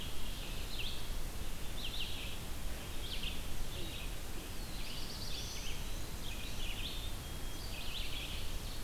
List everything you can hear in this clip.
Red-eyed Vireo, Black-throated Blue Warbler, Black-capped Chickadee, Ovenbird